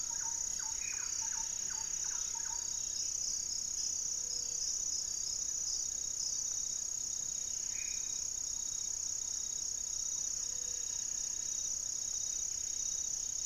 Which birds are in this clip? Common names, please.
Thrush-like Wren, Buff-breasted Wren, Amazonian Trogon, Black-faced Antthrush, Gray-fronted Dove, unidentified bird